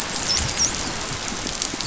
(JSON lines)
{"label": "biophony, dolphin", "recorder": "SoundTrap 500"}